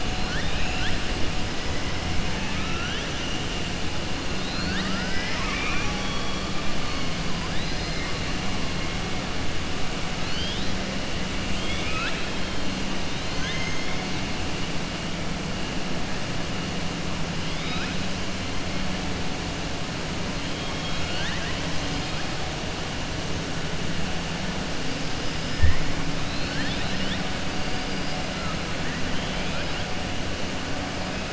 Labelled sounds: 2.3	3.1	killer whale, southern resident, 1.3 to 3.9 kHz
4.3	6.4	killer whale, southern resident, 0.85 to 5.6 kHz
10.2	10.7	killer whale, southern resident, 2.9 to 5.2 kHz
11.5	12.5	killer whale, southern resident, 1.3 to 4.5 kHz
13.1	14.0	killer whale, southern resident, 1.0 to 6.5 kHz
17.4	18.0	killer whale, southern resident, 1.3 to 5.1 kHz
20.6	21.6	killer whale, southern resident, 1.1 to 5.1 kHz
27.7	28.2	killer whale, southern resident, 4.7 to 5.4 kHz

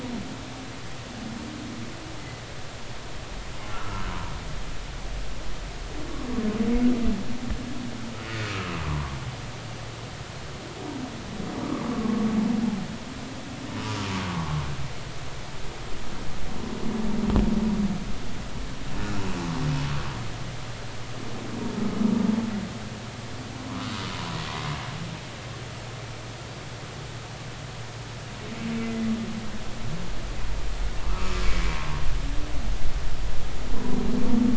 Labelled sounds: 3.7	4.1	humpback whale, 1.2 to 1.5 kHz
8.4	9.2	humpback whale, 0.93 to 1.4 kHz
11.6	12.2	humpback whale, 0.86 to 1.3 kHz
14.3	14.6	humpback whale, 0.80 to 1.2 kHz
23.7	23.9	humpback whale, 0.93 to 1.4 kHz
28.8	29.1	humpback whale, 1.8 to 2.1 kHz
32.0	32.4	humpback whale, 1.0 to 1.4 kHz

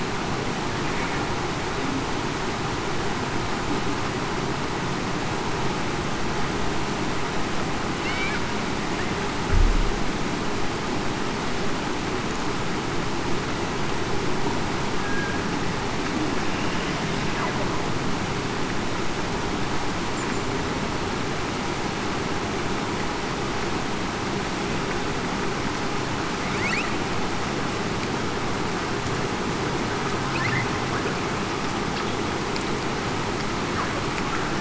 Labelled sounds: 8.0	8.4	killer whale, Bigg's (transient), 2.1 to 2.3 kHz
15.0	15.4	killer whale, Bigg's (transient), 1.6 to 1.7 kHz

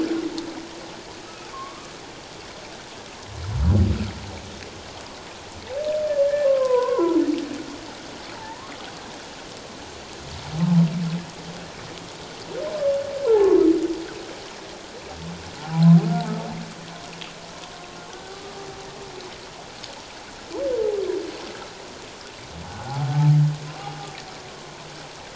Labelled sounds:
1.2	1.9	humpback whale, 1.0 to 1.5 kHz
6.4	7.2	humpback whale, 0.91 to 1.6 kHz
8.4	8.8	humpback whale, 0.81 to 1.2 kHz
13.2	13.5	humpback whale, 0.78 to 1.1 kHz
15.6	15.9	humpback whale, 0.78 to 0.94 kHz
18.3	18.6	humpback whale, 1.1 to 1.2 kHz
22.7	23.1	humpback whale, 0.78 to 1.5 kHz
23.7	24.0	humpback whale, 0.97 to 1.3 kHz

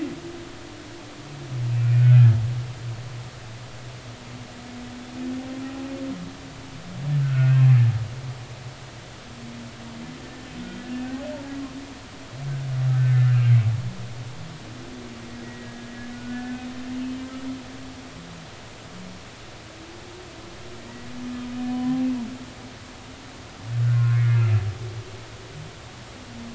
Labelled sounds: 1.8	2.1	humpback whale, 2.3 to 2.5 kHz
3.0	3.3	humpback whale, 1.3 to 1.6 kHz
5.6	5.9	humpback whale, 0.80 to 0.86 kHz
7.2	7.6	humpback whale, 1.3 to 1.9 kHz
10.6	10.8	humpback whale, 3.1 to 3.2 kHz
12.9	14.3	humpback whale, 1.4 to 1.8 kHz
15.4	16.6	humpback whale, 1.4 to 2.0 kHz
21.6	22.1	humpback whale, 0.80 to 1.1 kHz
23.8	24.4	humpback whale, 1.0 to 2.3 kHz

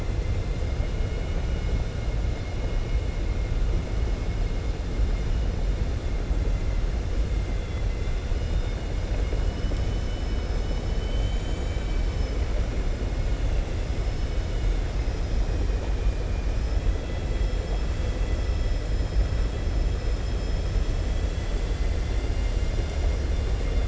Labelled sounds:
7.5	8.2	vessel noise, 2.0 to 3.5 kHz
9.0	10.4	vessel noise, 2.1 to 3.8 kHz
21.2	22.5	vessel noise, 2.0 to 4.1 kHz

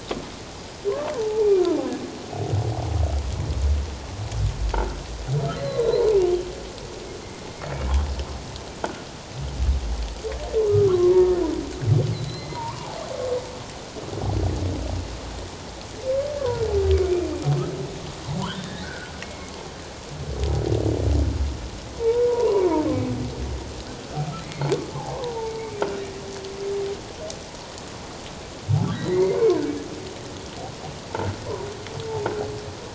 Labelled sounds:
1.1	1.6	humpback whale, 0.78 to 2.5 kHz
4.7	5.0	humpback whale, 1.3 to 1.6 kHz
5.6	6.1	humpback whale, 3.8 to 4.4 kHz
7.7	7.9	humpback whale, 2.2 to 2.4 kHz
10.9	11.1	humpback whale, 1.0 to 1.2 kHz
12.1	13.0	humpback whale, 0.78 to 4.2 kHz
18.6	19.5	humpback whale, 1.4 to 2.2 kHz
21.9	22.6	humpback whale, 0.88 to 1.2 kHz
24.4	25.5	humpback whale, 0.81 to 2.4 kHz
28.9	29.4	humpback whale, 1.7 to 2.3 kHz

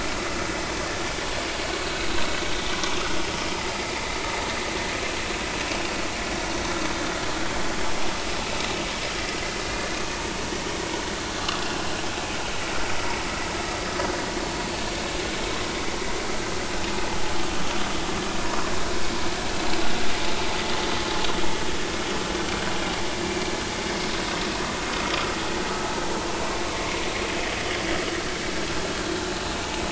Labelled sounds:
11.6	11.9	vessel noise, 2.7 to 2.8 kHz

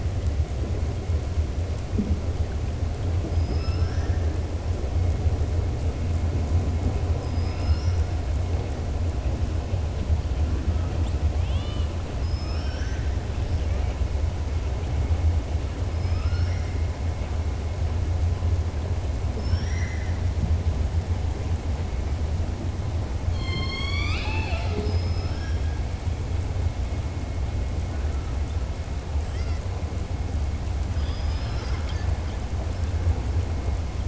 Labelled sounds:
3.2	4.3	killer whale, southern resident, 0.45 to 6.0 kHz
7.1	8.0	killer whale, southern resident, 1.3 to 5.8 kHz
11.3	13.1	killer whale, southern resident, 1.2 to 6.1 kHz
15.9	16.7	killer whale, southern resident, 1.2 to 5.7 kHz
19.3	20.2	killer whale, southern resident, 1.5 to 6.7 kHz
25.2	25.7	killer whale, southern resident, 1.3 to 2.1 kHz
30.8	32.1	killer whale, southern resident, 1.0 to 6.4 kHz

